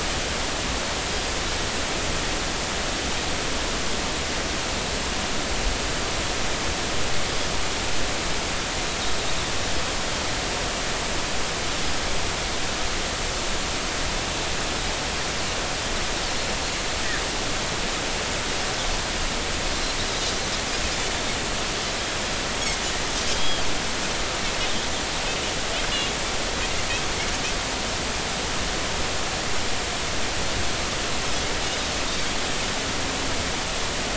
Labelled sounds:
20.1	20.4	Pacific white-sided dolphin, 4.8 to 5.0 kHz
23.3	23.6	Pacific white-sided dolphin, 3.1 to 3.4 kHz

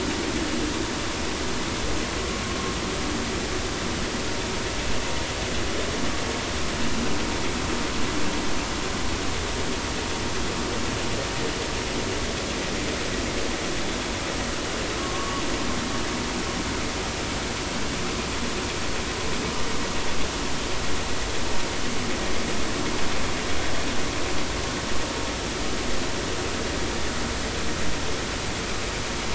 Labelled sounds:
15.0	15.4	vessel noise, 1.0 to 1.2 kHz

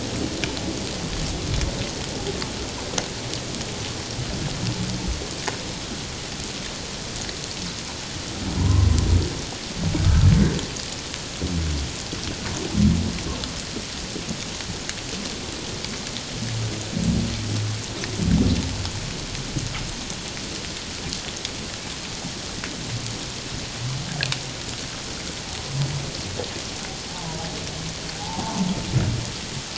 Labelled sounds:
8.6	8.9	humpback whale, 0.88 to 1.1 kHz
10.0	10.3	humpback whale, 1.2 to 1.4 kHz
28.2	28.6	humpback whale, 0.78 to 0.97 kHz

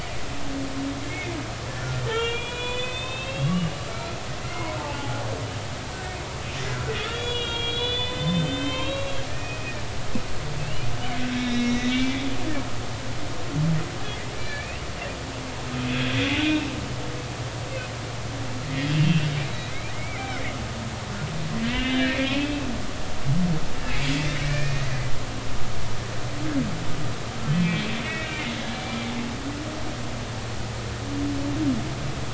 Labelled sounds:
1.8	5.2	humpback whale, 0.80 to 4.0 kHz
7.1	9.7	humpback whale, 0.86 to 4.9 kHz
10.6	12.2	humpback whale, 1.7 to 4.0 kHz
14.4	14.9	humpback whale, 1.7 to 4.7 kHz
15.9	16.6	humpback whale, 1.5 to 3.5 kHz
18.6	20.4	humpback whale, 1.9 to 4.0 kHz
21.7	22.6	humpback whale, 2.1 to 3.7 kHz
24.4	24.9	humpback whale, 1.7 to 2.5 kHz
27.5	28.4	humpback whale, 1.8 to 2.7 kHz
28.8	29.1	humpback whale, 2.2 to 2.4 kHz

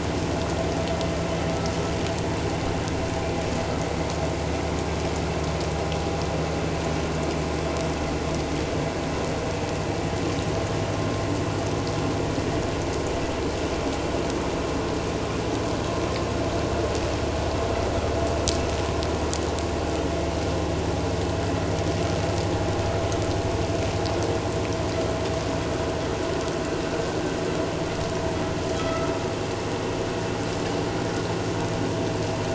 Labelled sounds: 28.8	29.1	vessel noise, 1.2 to 1.4 kHz

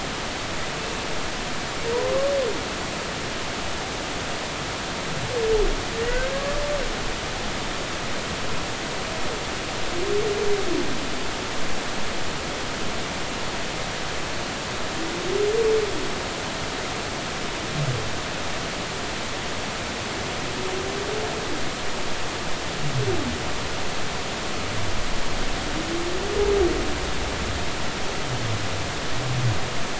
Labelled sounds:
5.9	6.2	humpback whale, 1.8 to 2.1 kHz

